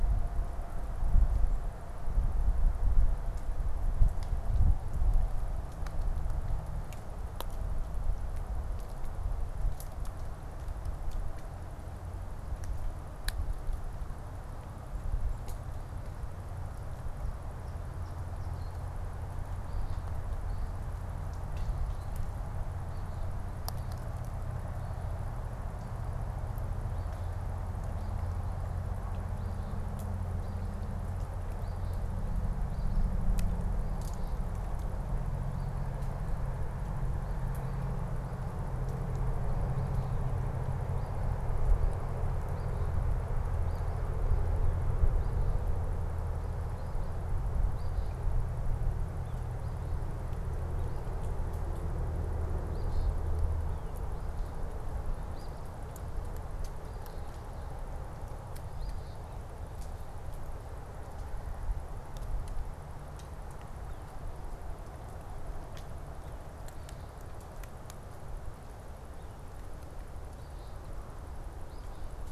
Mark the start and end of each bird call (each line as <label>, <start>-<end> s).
Eastern Phoebe (Sayornis phoebe), 17.5-23.5 s
Eastern Phoebe (Sayornis phoebe), 30.2-33.2 s
Eastern Phoebe (Sayornis phoebe), 35.4-36.0 s
Eastern Phoebe (Sayornis phoebe), 47.5-48.4 s
Eastern Phoebe (Sayornis phoebe), 52.4-53.4 s
Eastern Phoebe (Sayornis phoebe), 55.2-55.7 s
Eastern Phoebe (Sayornis phoebe), 56.8-57.4 s
Eastern Phoebe (Sayornis phoebe), 58.7-59.4 s
Eastern Phoebe (Sayornis phoebe), 70.3-72.2 s